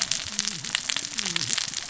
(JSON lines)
{"label": "biophony, cascading saw", "recorder": "SoundTrap 600 or HydroMoth"}